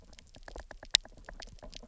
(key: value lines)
label: biophony, knock
recorder: SoundTrap 300